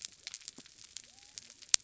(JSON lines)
{"label": "biophony", "recorder": "SoundTrap 300"}